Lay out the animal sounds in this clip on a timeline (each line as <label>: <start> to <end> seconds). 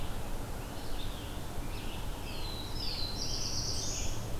Red-eyed Vireo (Vireo olivaceus): 0.0 to 4.4 seconds
Scarlet Tanager (Piranga olivacea): 0.9 to 4.3 seconds
Black-throated Blue Warbler (Setophaga caerulescens): 2.2 to 4.4 seconds